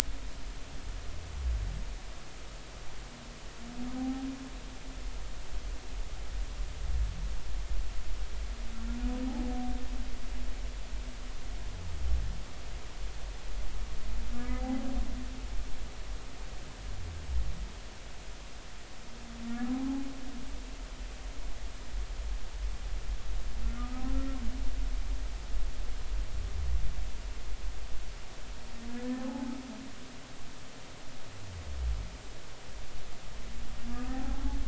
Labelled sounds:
4.0	4.2	humpback whale, 0.80 to 0.83 kHz
14.4	14.8	humpback whale, 0.80 to 1.8 kHz
19.6	19.9	humpback whale, 0.80 to 0.86 kHz
23.8	24.0	humpback whale, 1.2 to 1.3 kHz
28.9	29.6	humpback whale, 0.80 to 1.8 kHz
33.9	34.4	humpback whale, 0.80 to 1.3 kHz

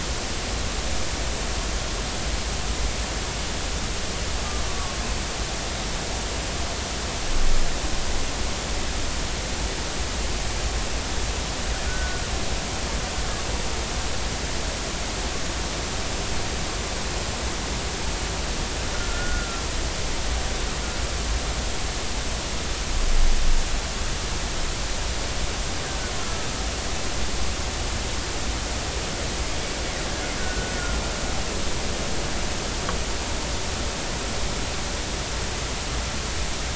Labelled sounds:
11.9	12.2	killer whale, Bigg's (transient), 1.4 to 1.6 kHz
18.9	19.6	killer whale, Bigg's (transient), 1.3 to 1.5 kHz
26.2	26.5	killer whale, Bigg's (transient), 1.3 to 1.4 kHz
30.4	30.7	killer whale, Bigg's (transient), 1.4 to 1.7 kHz

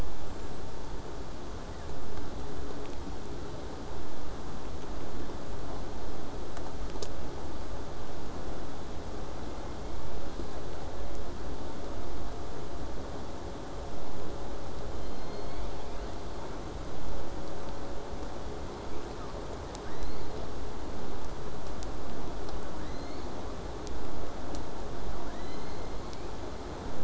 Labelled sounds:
0.1	0.7	killer whale, southern resident, J pod, 6.6 to 7.9 kHz
1.5	2.0	killer whale, southern resident, J pod, 1.0 to 2.1 kHz
9.4	10.8	killer whale, southern resident, J pod, call S01, 1.9 to 5.2 kHz
14.9	16.2	killer whale, southern resident, J pod, call S01, 1.9 to 6.6 kHz
19.8	20.3	killer whale, southern resident, J pod, 1.1 to 4.8 kHz
22.7	23.3	killer whale, southern resident, J pod, 0.65 to 8.0 kHz

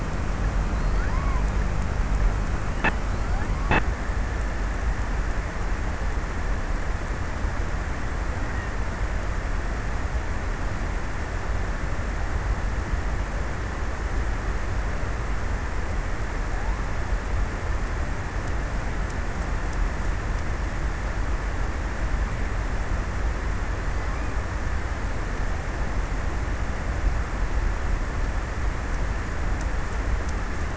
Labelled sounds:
0.6	2.2	killer whale, offshore, 0.55 to 2.5 kHz

